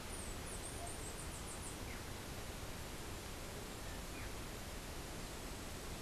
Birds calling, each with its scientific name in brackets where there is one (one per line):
Chestnut-capped Brushfinch (Arremon brunneinucha)